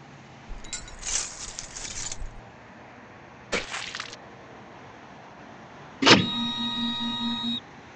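At 0.47 seconds, the sound of glass is heard. Then, at 3.52 seconds, there is splashing. Finally, at 6.02 seconds, the loud sound of a printer is audible.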